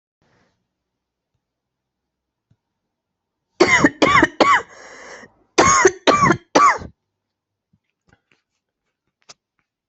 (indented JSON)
{
  "expert_labels": [
    {
      "quality": "good",
      "cough_type": "dry",
      "dyspnea": false,
      "wheezing": false,
      "stridor": false,
      "choking": false,
      "congestion": false,
      "nothing": true,
      "diagnosis": "upper respiratory tract infection",
      "severity": "mild"
    }
  ],
  "age": 33,
  "gender": "female",
  "respiratory_condition": true,
  "fever_muscle_pain": true,
  "status": "symptomatic"
}